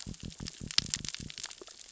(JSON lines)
{"label": "biophony", "recorder": "SoundTrap 600 or HydroMoth"}